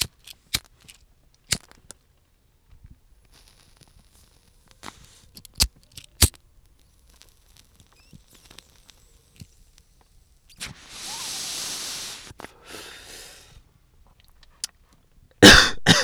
is someone trying to light something?
yes